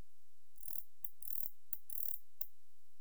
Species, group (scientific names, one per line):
Barbitistes ocskayi
Orthoptera